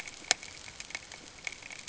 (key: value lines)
label: ambient
recorder: HydroMoth